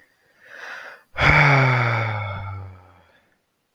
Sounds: Sigh